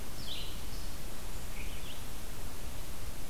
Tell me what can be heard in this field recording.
unknown mammal, Red-eyed Vireo